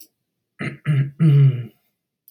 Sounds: Throat clearing